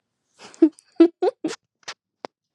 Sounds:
Laughter